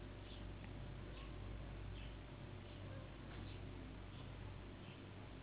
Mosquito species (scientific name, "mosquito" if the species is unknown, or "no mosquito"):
Anopheles gambiae s.s.